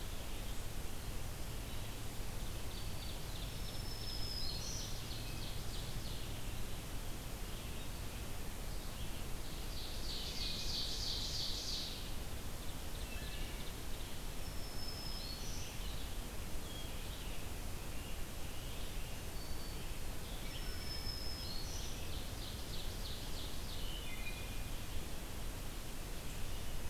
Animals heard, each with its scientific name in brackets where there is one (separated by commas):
Wood Thrush (Hylocichla mustelina), Black-throated Green Warbler (Setophaga virens), Ovenbird (Seiurus aurocapilla), Red-eyed Vireo (Vireo olivaceus)